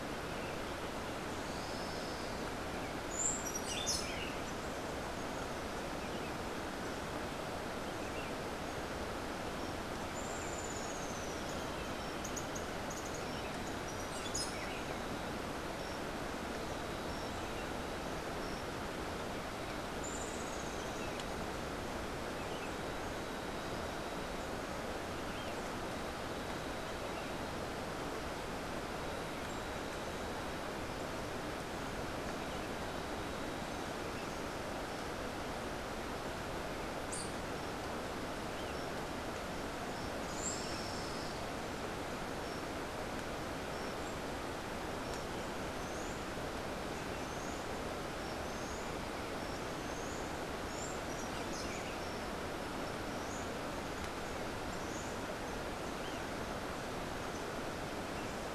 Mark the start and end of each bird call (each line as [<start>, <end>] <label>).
[1.34, 2.44] Olivaceous Woodcreeper (Sittasomus griseicapillus)
[3.04, 4.34] Buff-throated Saltator (Saltator maximus)
[10.04, 11.54] Rufous-tailed Hummingbird (Amazilia tzacatl)
[13.94, 14.74] Buff-throated Saltator (Saltator maximus)
[40.24, 40.74] Buff-throated Saltator (Saltator maximus)
[45.54, 50.34] Buff-throated Saltator (Saltator maximus)
[50.64, 58.54] Buff-throated Saltator (Saltator maximus)